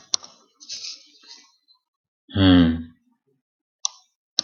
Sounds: Sigh